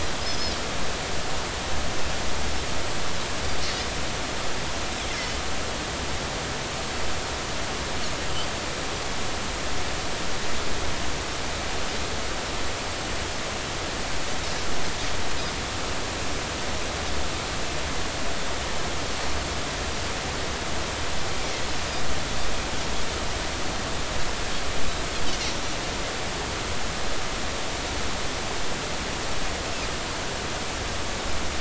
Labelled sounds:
0.2	0.6	Pacific white-sided dolphin, 4.9 to 5.3 kHz

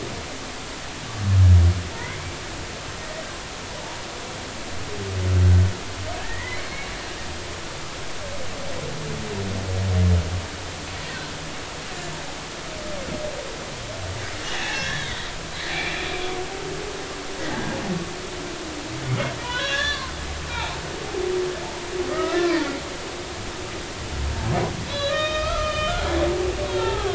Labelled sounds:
2.0	2.2	humpback whale, 1.8 to 2.2 kHz
6.2	6.7	humpback whale, 1.6 to 2.3 kHz
14.5	15.1	humpback whale, 1.5 to 3.5 kHz
15.7	16.1	humpback whale, 2.2 to 2.6 kHz
19.4	20.1	humpback whale, 0.93 to 6.6 kHz
20.5	20.8	humpback whale, 0.80 to 0.99 kHz
22.1	22.5	humpback whale, 1.2 to 1.4 kHz
24.9	26.1	humpback whale, 1.1 to 5.7 kHz
26.7	27.1	humpback whale, 0.80 to 3.9 kHz

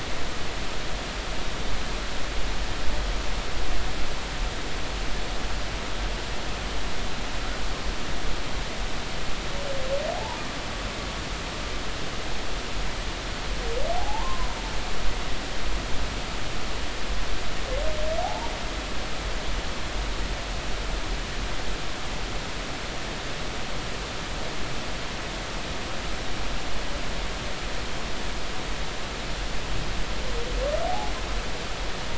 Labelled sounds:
10.2	10.4	humpback whale, 0.80 to 1.0 kHz
13.9	14.5	humpback whale, 0.80 to 1.1 kHz
18.2	18.5	humpback whale, 0.80 to 0.99 kHz
30.9	31.1	humpback whale, 0.80 to 0.90 kHz

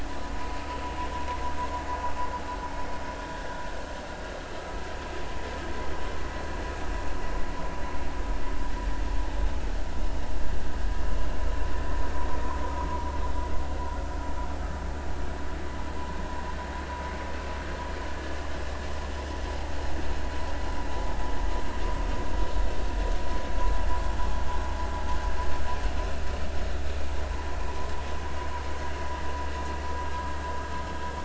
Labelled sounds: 4.6	4.8	vessel noise, 1.2 to 1.4 kHz

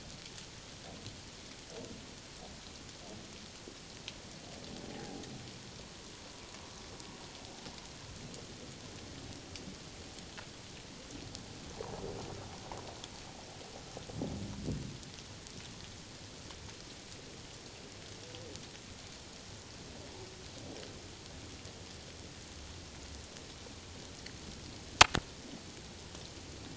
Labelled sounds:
4.9	5.2	humpback whale, 0.78 to 0.88 kHz
11.7	12.0	humpback whale, 0.78 to 1.2 kHz

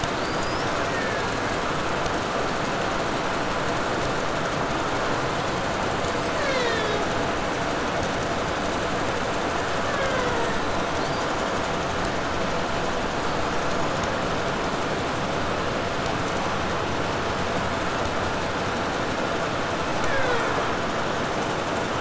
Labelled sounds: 0.0	1.8	killer whale, Bigg's (transient), 1.3 to 8.0 kHz
5.7	7.6	killer whale, Bigg's (transient), 0.22 to 7.9 kHz
9.5	11.3	killer whale, Bigg's (transient), 0.27 to 4.9 kHz
19.6	20.8	killer whale, Bigg's (transient), 0.27 to 4.5 kHz

